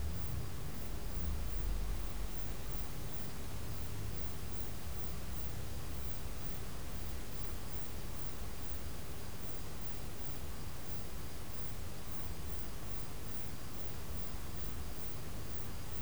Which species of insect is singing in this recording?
Ctenodecticus major